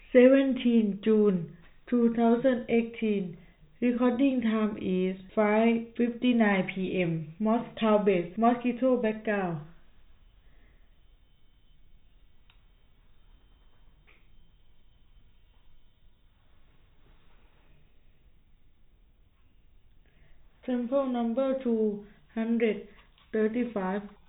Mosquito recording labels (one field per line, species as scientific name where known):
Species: no mosquito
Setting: cup